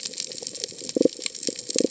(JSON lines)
{"label": "biophony", "recorder": "HydroMoth"}